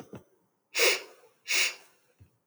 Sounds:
Sniff